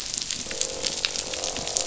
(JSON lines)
{"label": "biophony, croak", "recorder": "SoundTrap 500"}